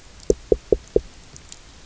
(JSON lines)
{"label": "biophony, knock", "recorder": "SoundTrap 300"}